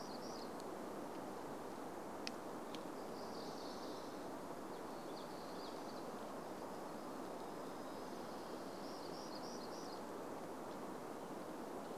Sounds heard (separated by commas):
warbler song